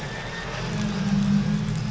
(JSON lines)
{"label": "anthrophony, boat engine", "recorder": "SoundTrap 500"}